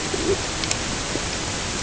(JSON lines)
{"label": "ambient", "recorder": "HydroMoth"}